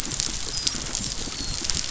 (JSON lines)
{"label": "biophony, dolphin", "recorder": "SoundTrap 500"}